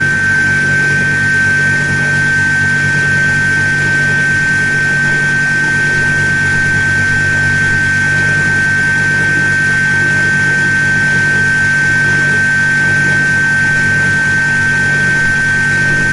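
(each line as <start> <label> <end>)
0.0 An old washing machine runs, emitting a continuous grinding metallic sound. 16.1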